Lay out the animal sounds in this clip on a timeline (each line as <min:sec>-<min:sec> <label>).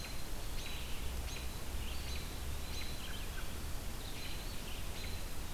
0:00.0-0:05.5 American Robin (Turdus migratorius)
0:00.0-0:05.5 Red-eyed Vireo (Vireo olivaceus)
0:01.9-0:03.2 Eastern Wood-Pewee (Contopus virens)